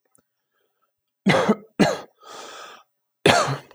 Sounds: Cough